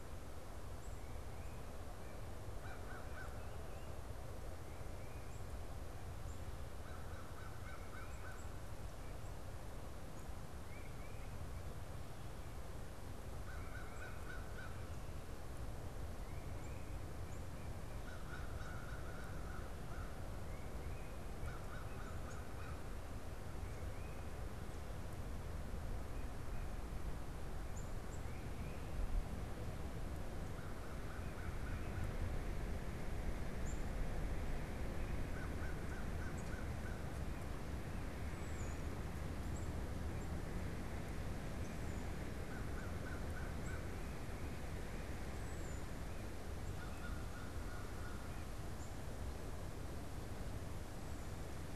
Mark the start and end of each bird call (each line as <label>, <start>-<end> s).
Tufted Titmouse (Baeolophus bicolor), 0.8-1.8 s
American Crow (Corvus brachyrhynchos), 2.1-3.9 s
Tufted Titmouse (Baeolophus bicolor), 4.5-5.6 s
American Crow (Corvus brachyrhynchos), 6.7-8.7 s
Tufted Titmouse (Baeolophus bicolor), 7.6-8.4 s
Tufted Titmouse (Baeolophus bicolor), 10.6-11.7 s
American Crow (Corvus brachyrhynchos), 13.4-14.9 s
Tufted Titmouse (Baeolophus bicolor), 16.1-17.1 s
American Crow (Corvus brachyrhynchos), 17.9-20.5 s
American Crow (Corvus brachyrhynchos), 21.4-23.1 s
unidentified bird, 27.3-42.5 s
American Crow (Corvus brachyrhynchos), 30.4-32.3 s
American Crow (Corvus brachyrhynchos), 35.2-37.4 s
American Crow (Corvus brachyrhynchos), 42.4-43.9 s
Tufted Titmouse (Baeolophus bicolor), 43.5-51.8 s
American Crow (Corvus brachyrhynchos), 46.6-48.6 s